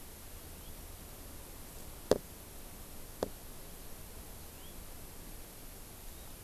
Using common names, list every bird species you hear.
House Finch